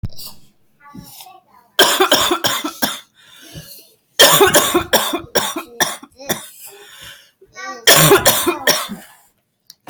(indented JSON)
{
  "expert_labels": [
    {
      "quality": "ok",
      "cough_type": "dry",
      "dyspnea": false,
      "wheezing": false,
      "stridor": false,
      "choking": false,
      "congestion": false,
      "nothing": true,
      "diagnosis": "COVID-19",
      "severity": "severe"
    }
  ],
  "age": 39,
  "gender": "female",
  "respiratory_condition": false,
  "fever_muscle_pain": true,
  "status": "symptomatic"
}